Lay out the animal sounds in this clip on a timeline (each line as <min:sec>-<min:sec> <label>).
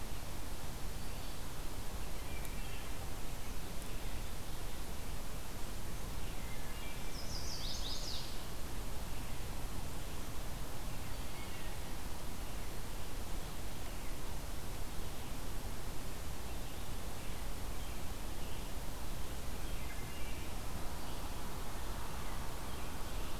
0:02.2-0:03.0 Wood Thrush (Hylocichla mustelina)
0:06.2-0:07.2 Wood Thrush (Hylocichla mustelina)
0:07.0-0:08.3 Chestnut-sided Warbler (Setophaga pensylvanica)
0:16.3-0:23.4 Red-eyed Vireo (Vireo olivaceus)
0:19.6-0:20.4 Wood Thrush (Hylocichla mustelina)